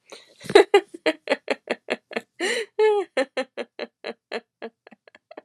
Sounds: Laughter